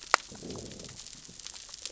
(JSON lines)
{"label": "biophony, growl", "recorder": "SoundTrap 600 or HydroMoth"}